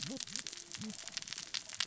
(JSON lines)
{"label": "biophony, cascading saw", "recorder": "SoundTrap 600 or HydroMoth"}